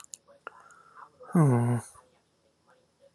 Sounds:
Sigh